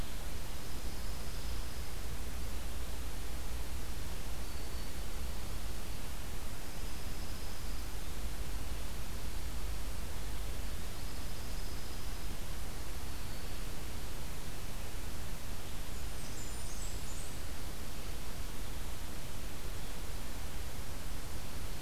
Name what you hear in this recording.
Dark-eyed Junco, Blackburnian Warbler